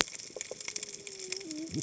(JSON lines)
{"label": "biophony, cascading saw", "recorder": "HydroMoth"}